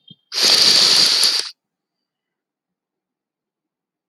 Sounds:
Sniff